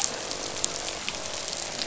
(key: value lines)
label: biophony, croak
recorder: SoundTrap 500